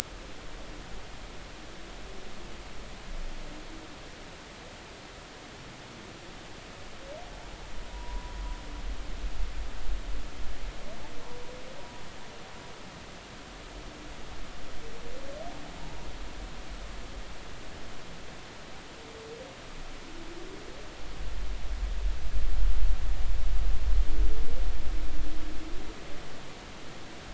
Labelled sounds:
7.9	8.4	humpback whale, 0.93 to 1.0 kHz

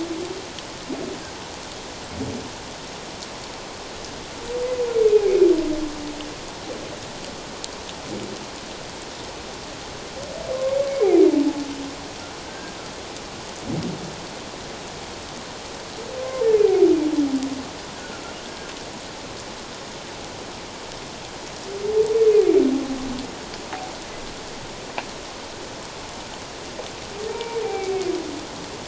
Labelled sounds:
5.1	5.5	humpback whale, 2.2 to 2.6 kHz
12.5	12.8	humpback whale, 1.5 to 1.7 kHz
27.3	27.9	humpback whale, 0.78 to 2.4 kHz

